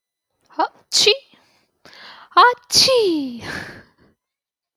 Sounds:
Sneeze